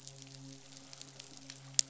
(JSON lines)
{"label": "biophony, midshipman", "recorder": "SoundTrap 500"}